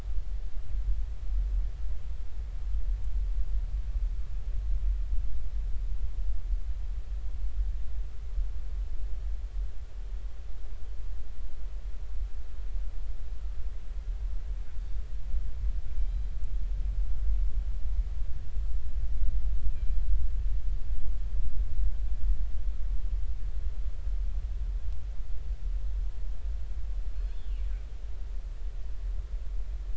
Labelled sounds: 16.0	16.3	killer whale, northern resident, 2.3 to 2.4 kHz
19.7	20.0	killer whale, northern resident, 2.3 to 2.7 kHz
27.1	27.6	killer whale, northern resident, 2.6 to 4.3 kHz

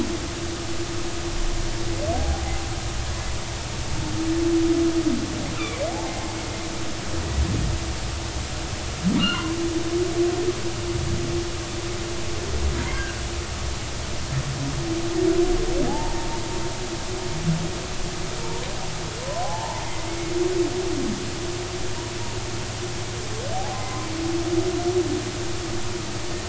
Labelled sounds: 2.1	2.4	humpback whale, 0.80 to 0.86 kHz
5.6	6.2	humpback whale, 0.80 to 2.7 kHz
9.2	9.5	humpback whale, 1.3 to 3.0 kHz
15.9	16.3	humpback whale, 0.80 to 0.96 kHz
18.4	18.7	humpback whale, 0.86 to 1.0 kHz
19.2	19.8	humpback whale, 0.80 to 1.1 kHz
23.5	24.1	humpback whale, 0.80 to 1.1 kHz

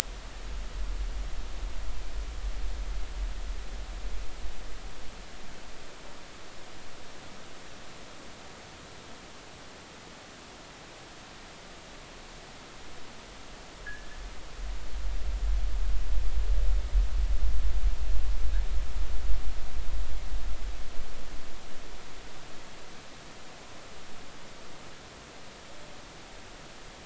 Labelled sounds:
13.8	14.1	fishing gear, 1.5 to 1.8 kHz

